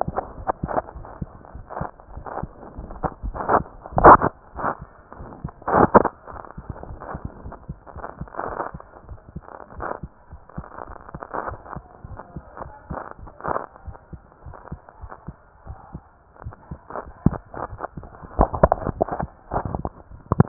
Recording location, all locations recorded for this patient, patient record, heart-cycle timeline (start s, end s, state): mitral valve (MV)
aortic valve (AV)+pulmonary valve (PV)+tricuspid valve (TV)+mitral valve (MV)
#Age: Child
#Sex: Male
#Height: 116.0 cm
#Weight: 22.5 kg
#Pregnancy status: False
#Murmur: Absent
#Murmur locations: nan
#Most audible location: nan
#Systolic murmur timing: nan
#Systolic murmur shape: nan
#Systolic murmur grading: nan
#Systolic murmur pitch: nan
#Systolic murmur quality: nan
#Diastolic murmur timing: nan
#Diastolic murmur shape: nan
#Diastolic murmur grading: nan
#Diastolic murmur pitch: nan
#Diastolic murmur quality: nan
#Outcome: Abnormal
#Campaign: 2015 screening campaign
0.00	9.77	unannotated
9.77	9.83	S1
9.83	10.02	systole
10.02	10.09	S2
10.09	10.30	diastole
10.30	10.38	S1
10.38	10.55	systole
10.55	10.64	S2
10.64	10.87	diastole
10.87	10.95	S1
10.95	11.13	systole
11.13	11.19	S2
11.19	11.50	diastole
11.50	11.56	S1
11.56	11.74	systole
11.74	11.82	S2
11.82	12.09	diastole
12.09	12.16	S1
12.16	12.35	systole
12.35	12.41	S2
12.41	12.62	diastole
12.62	12.71	S1
12.71	12.88	systole
12.88	12.96	S2
12.96	13.85	unannotated
13.85	13.97	S1
13.97	14.10	systole
14.10	14.21	S2
14.21	14.45	diastole
14.45	14.53	S1
14.53	14.70	systole
14.70	14.76	S2
14.76	15.01	diastole
15.01	15.08	S1
15.08	15.27	systole
15.27	15.32	S2
15.32	15.66	diastole
15.66	15.75	S1
15.75	15.92	systole
15.92	15.98	S2
15.98	16.43	diastole
16.43	16.54	S1
16.54	16.69	systole
16.69	16.77	S2
16.77	20.48	unannotated